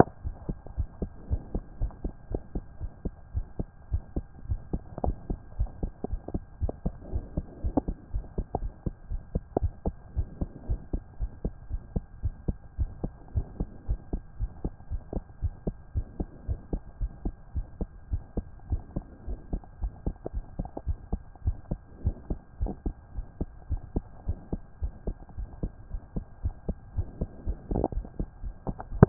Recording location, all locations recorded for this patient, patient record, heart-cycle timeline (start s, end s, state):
pulmonary valve (PV)
pulmonary valve (PV)+tricuspid valve (TV)+mitral valve (MV)
#Age: Child
#Sex: Female
#Height: 150.0 cm
#Weight: 47.4 kg
#Pregnancy status: False
#Murmur: Present
#Murmur locations: pulmonary valve (PV)
#Most audible location: pulmonary valve (PV)
#Systolic murmur timing: Holosystolic
#Systolic murmur shape: Plateau
#Systolic murmur grading: I/VI
#Systolic murmur pitch: Low
#Systolic murmur quality: Blowing
#Diastolic murmur timing: nan
#Diastolic murmur shape: nan
#Diastolic murmur grading: nan
#Diastolic murmur pitch: nan
#Diastolic murmur quality: nan
#Outcome: Normal
#Campaign: 2014 screening campaign
0.00	0.13	unannotated
0.13	0.24	diastole
0.24	0.34	S1
0.34	0.48	systole
0.48	0.56	S2
0.56	0.78	diastole
0.78	0.88	S1
0.88	1.00	systole
1.00	1.10	S2
1.10	1.30	diastole
1.30	1.42	S1
1.42	1.54	systole
1.54	1.62	S2
1.62	1.80	diastole
1.80	1.92	S1
1.92	2.04	systole
2.04	2.12	S2
2.12	2.30	diastole
2.30	2.42	S1
2.42	2.54	systole
2.54	2.64	S2
2.64	2.80	diastole
2.80	2.92	S1
2.92	3.04	systole
3.04	3.14	S2
3.14	3.34	diastole
3.34	3.46	S1
3.46	3.58	systole
3.58	3.68	S2
3.68	3.92	diastole
3.92	4.02	S1
4.02	4.16	systole
4.16	4.24	S2
4.24	4.48	diastole
4.48	4.60	S1
4.60	4.72	systole
4.72	4.82	S2
4.82	5.04	diastole
5.04	5.16	S1
5.16	5.28	systole
5.28	5.38	S2
5.38	5.58	diastole
5.58	5.70	S1
5.70	5.82	systole
5.82	5.92	S2
5.92	6.10	diastole
6.10	6.20	S1
6.20	6.32	systole
6.32	6.42	S2
6.42	6.60	diastole
6.60	6.72	S1
6.72	6.84	systole
6.84	6.94	S2
6.94	7.12	diastole
7.12	7.24	S1
7.24	7.36	systole
7.36	7.46	S2
7.46	7.64	diastole
7.64	7.74	S1
7.74	7.86	systole
7.86	7.96	S2
7.96	8.14	diastole
8.14	8.24	S1
8.24	8.36	systole
8.36	8.46	S2
8.46	8.60	diastole
8.60	8.72	S1
8.72	8.84	systole
8.84	8.94	S2
8.94	9.10	diastole
9.10	9.22	S1
9.22	9.34	systole
9.34	9.42	S2
9.42	9.60	diastole
9.60	9.72	S1
9.72	9.86	systole
9.86	9.94	S2
9.94	10.16	diastole
10.16	10.28	S1
10.28	10.40	systole
10.40	10.50	S2
10.50	10.68	diastole
10.68	10.80	S1
10.80	10.92	systole
10.92	11.02	S2
11.02	11.20	diastole
11.20	11.30	S1
11.30	11.44	systole
11.44	11.52	S2
11.52	11.70	diastole
11.70	11.82	S1
11.82	11.94	systole
11.94	12.04	S2
12.04	12.22	diastole
12.22	12.34	S1
12.34	12.46	systole
12.46	12.56	S2
12.56	12.78	diastole
12.78	12.90	S1
12.90	13.02	systole
13.02	13.12	S2
13.12	13.34	diastole
13.34	13.46	S1
13.46	13.58	systole
13.58	13.68	S2
13.68	13.88	diastole
13.88	14.00	S1
14.00	14.12	systole
14.12	14.22	S2
14.22	14.40	diastole
14.40	14.50	S1
14.50	14.64	systole
14.64	14.72	S2
14.72	14.90	diastole
14.90	15.02	S1
15.02	15.14	systole
15.14	15.24	S2
15.24	15.42	diastole
15.42	15.54	S1
15.54	15.66	systole
15.66	15.76	S2
15.76	15.94	diastole
15.94	16.06	S1
16.06	16.18	systole
16.18	16.28	S2
16.28	16.48	diastole
16.48	16.60	S1
16.60	16.72	systole
16.72	16.82	S2
16.82	17.00	diastole
17.00	17.12	S1
17.12	17.24	systole
17.24	17.34	S2
17.34	17.54	diastole
17.54	17.66	S1
17.66	17.80	systole
17.80	17.88	S2
17.88	18.10	diastole
18.10	18.22	S1
18.22	18.36	systole
18.36	18.46	S2
18.46	18.70	diastole
18.70	18.82	S1
18.82	18.96	systole
18.96	19.04	S2
19.04	19.28	diastole
19.28	19.38	S1
19.38	19.52	systole
19.52	19.62	S2
19.62	19.82	diastole
19.82	19.92	S1
19.92	20.06	systole
20.06	20.14	S2
20.14	20.34	diastole
20.34	20.44	S1
20.44	20.58	systole
20.58	20.68	S2
20.68	20.86	diastole
20.86	20.98	S1
20.98	21.12	systole
21.12	21.20	S2
21.20	21.44	diastole
21.44	21.56	S1
21.56	21.70	systole
21.70	21.80	S2
21.80	22.04	diastole
22.04	22.16	S1
22.16	22.30	systole
22.30	22.38	S2
22.38	22.60	diastole
22.60	22.72	S1
22.72	22.86	systole
22.86	22.94	S2
22.94	23.16	diastole
23.16	23.26	S1
23.26	23.40	systole
23.40	23.48	S2
23.48	23.70	diastole
23.70	23.82	S1
23.82	23.94	systole
23.94	24.04	S2
24.04	24.26	diastole
24.26	24.38	S1
24.38	24.52	systole
24.52	24.60	S2
24.60	24.82	diastole
24.82	24.92	S1
24.92	25.06	systole
25.06	25.16	S2
25.16	25.38	diastole
25.38	25.48	S1
25.48	25.62	systole
25.62	25.72	S2
25.72	25.92	diastole
25.92	26.02	S1
26.02	26.16	systole
26.16	26.24	S2
26.24	26.44	diastole
26.44	26.54	S1
26.54	26.68	systole
26.68	26.76	S2
26.76	26.96	diastole
26.96	27.08	S1
27.08	27.20	systole
27.20	27.30	S2
27.30	27.46	diastole
27.46	29.09	unannotated